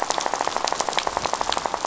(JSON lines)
{"label": "biophony, rattle", "recorder": "SoundTrap 500"}